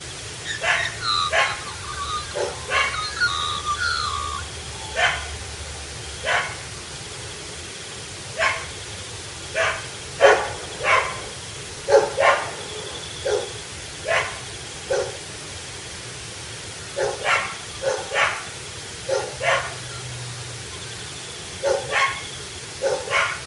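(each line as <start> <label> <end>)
0.0 Birds chirp in the early morning while a dog barks repeatedly outside. 5.8
5.9 Two dogs bark at each other while crickets sing rhythmically in the background. 23.4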